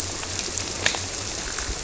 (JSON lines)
{"label": "biophony", "recorder": "SoundTrap 300"}